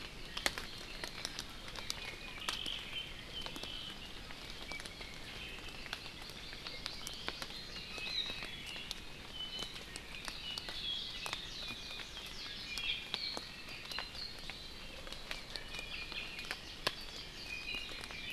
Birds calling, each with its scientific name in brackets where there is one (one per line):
Warbling White-eye (Zosterops japonicus)
Apapane (Himatione sanguinea)
Hawaii Amakihi (Chlorodrepanis virens)
Iiwi (Drepanis coccinea)